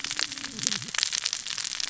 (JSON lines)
{"label": "biophony, cascading saw", "recorder": "SoundTrap 600 or HydroMoth"}